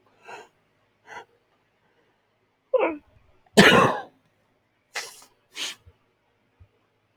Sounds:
Sneeze